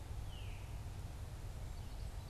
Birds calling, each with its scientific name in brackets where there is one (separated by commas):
Veery (Catharus fuscescens), Common Yellowthroat (Geothlypis trichas)